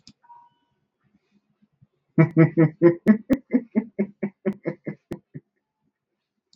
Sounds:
Laughter